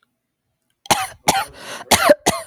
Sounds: Cough